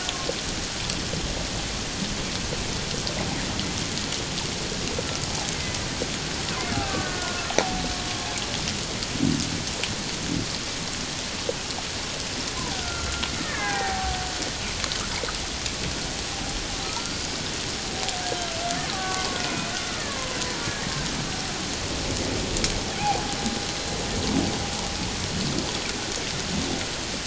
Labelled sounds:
5.5	5.8	killer whale, Bigg's (transient), 2.0 to 2.2 kHz
6.8	7.8	killer whale, Bigg's (transient), 0.78 to 1.6 kHz
12.7	14.2	killer whale, Bigg's (transient), 0.78 to 2.3 kHz
16.8	17.2	killer whale, Bigg's (transient), 1.2 to 1.5 kHz
18.9	20.7	killer whale, Bigg's (transient), 0.91 to 2.6 kHz
22.9	23.3	killer whale, Bigg's (transient), 0.78 to 0.91 kHz

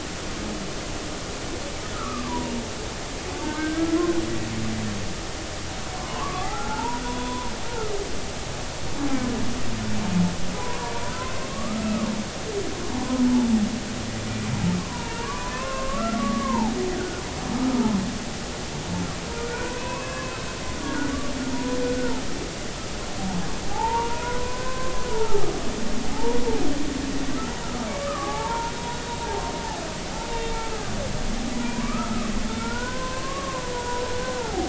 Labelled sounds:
1.9	2.5	humpback whale, 0.86 to 1.4 kHz
3.4	4.1	humpback whale, 1.3 to 1.7 kHz
4.4	4.6	humpback whale, 0.86 to 0.96 kHz
6.0	7.5	humpback whale, 0.80 to 3.5 kHz
10.5	12.1	humpback whale, 0.93 to 1.4 kHz
13.0	13.2	humpback whale, 0.86 to 1.1 kHz
14.8	17.2	humpback whale, 0.80 to 2.8 kHz
19.3	20.4	humpback whale, 0.86 to 2.6 kHz
21.5	22.2	humpback whale, 0.90 to 1.5 kHz
23.7	25.5	humpback whale, 0.80 to 1.6 kHz
26.1	26.4	humpback whale, 0.80 to 0.99 kHz
27.6	28.7	humpback whale, 0.80 to 1.4 kHz
30.3	30.6	humpback whale, 2.7 to 3.7 kHz
31.5	34.6	humpback whale, 0.80 to 1.6 kHz

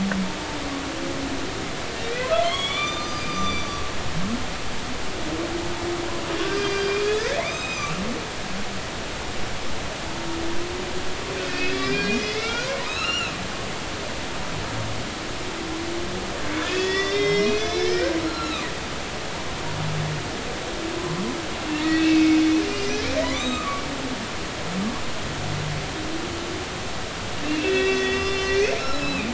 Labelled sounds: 2.4	3.7	humpback whale, 0.99 to 6.1 kHz
6.4	6.9	humpback whale, 1.5 to 6.5 kHz
7.4	7.9	humpback whale, 1.9 to 6.4 kHz
11.4	13.3	humpback whale, 0.93 to 5.4 kHz
16.6	18.7	humpback whale, 1.1 to 6.1 kHz
21.7	23.8	humpback whale, 0.93 to 7.6 kHz
27.4	29.3	humpback whale, 1.5 to 5.9 kHz

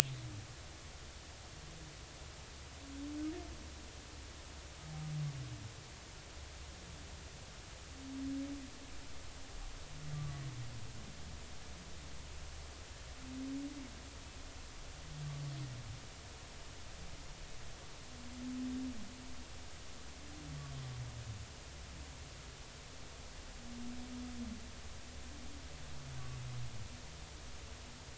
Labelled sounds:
10.1	10.4	humpback whale, 1.1 to 1.2 kHz

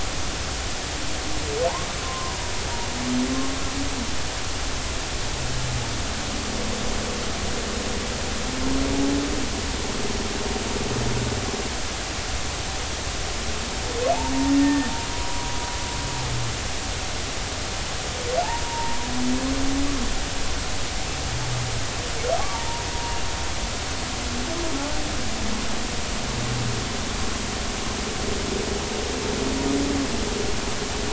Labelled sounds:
2.0	2.4	humpback whale, 0.90 to 1.1 kHz
14.5	15.5	humpback whale, 0.93 to 1.9 kHz
18.6	19.0	humpback whale, 0.86 to 0.99 kHz
22.5	23.3	humpback whale, 0.86 to 2.9 kHz

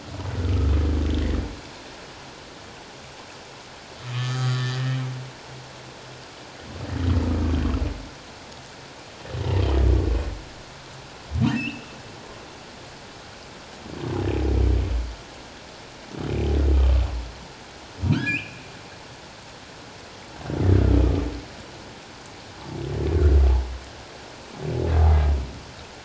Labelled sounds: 0.4	0.7	humpback whale, 1.2 to 1.5 kHz
4.1	5.0	humpback whale, 1.1 to 4.8 kHz
11.5	11.9	humpback whale, 2.4 to 3.0 kHz
18.1	18.6	humpback whale, 1.3 to 3.2 kHz

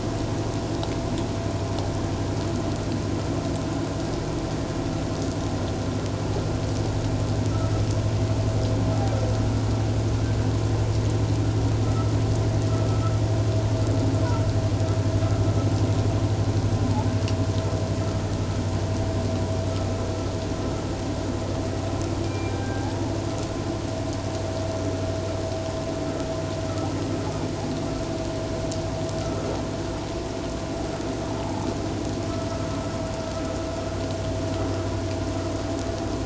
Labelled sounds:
22.2	23.1	humpback whale, 0.78 to 2.4 kHz
29.2	29.5	vessel noise, 1.2 to 1.4 kHz
31.4	31.6	humpback whale, 0.81 to 0.97 kHz

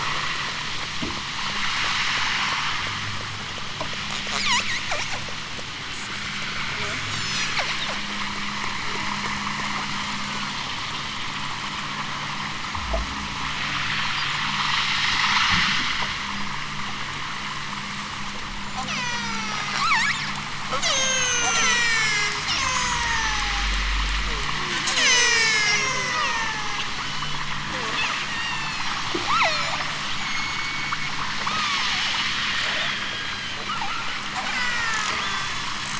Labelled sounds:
4.3	4.7	killer whale, southern Alaska resident, 0.55 to 8.0 kHz
5.9	8.1	killer whale, southern Alaska resident, 0.32 to 8.0 kHz
18.8	20.4	killer whale, southern Alaska resident, 0.50 to 8.0 kHz
20.7	23.5	killer whale, southern Alaska resident, 0.37 to 8.0 kHz
24.8	27.4	killer whale, southern Alaska resident, 0.32 to 8.0 kHz
28.2	32.0	killer whale, southern Alaska resident, 0.32 to 8.0 kHz
32.9	33.9	killer whale, southern Alaska resident, 0.50 to 8.0 kHz
34.4	35.8	killer whale, southern Alaska resident, 1.1 to 8.0 kHz

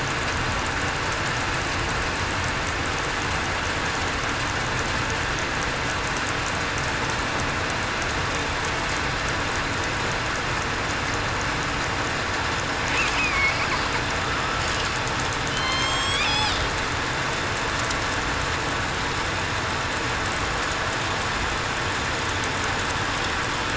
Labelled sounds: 13.2	13.5	killer whale, southern resident, 2.1 to 2.6 kHz
15.5	16.2	killer whale, southern resident, 2.0 to 8.0 kHz

